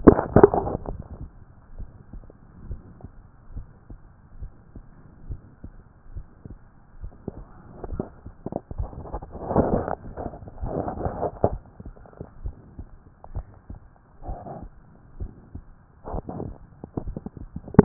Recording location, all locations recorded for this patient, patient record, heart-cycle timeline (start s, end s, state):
tricuspid valve (TV)
pulmonary valve (PV)+tricuspid valve (TV)+mitral valve (MV)
#Age: nan
#Sex: Female
#Height: nan
#Weight: nan
#Pregnancy status: True
#Murmur: Absent
#Murmur locations: nan
#Most audible location: nan
#Systolic murmur timing: nan
#Systolic murmur shape: nan
#Systolic murmur grading: nan
#Systolic murmur pitch: nan
#Systolic murmur quality: nan
#Diastolic murmur timing: nan
#Diastolic murmur shape: nan
#Diastolic murmur grading: nan
#Diastolic murmur pitch: nan
#Diastolic murmur quality: nan
#Outcome: Normal
#Campaign: 2014 screening campaign
0.00	1.65	unannotated
1.65	1.76	diastole
1.76	1.88	S1
1.88	2.12	systole
2.12	2.22	S2
2.22	2.68	diastole
2.68	2.80	S1
2.80	3.02	systole
3.02	3.10	S2
3.10	3.54	diastole
3.54	3.66	S1
3.66	3.90	systole
3.90	3.98	S2
3.98	4.40	diastole
4.40	4.50	S1
4.50	4.74	systole
4.74	4.84	S2
4.84	5.28	diastole
5.28	5.40	S1
5.40	5.64	systole
5.64	5.72	S2
5.72	6.14	diastole
6.14	6.26	S1
6.26	6.46	systole
6.46	6.58	S2
6.58	7.00	diastole
7.00	7.12	S1
7.12	7.34	systole
7.34	7.44	S2
7.44	7.88	diastole
7.88	8.02	S1
8.02	8.24	systole
8.24	8.34	S2
8.34	8.46	diastole
8.46	17.84	unannotated